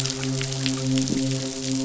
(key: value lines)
label: biophony
recorder: SoundTrap 500

label: biophony, midshipman
recorder: SoundTrap 500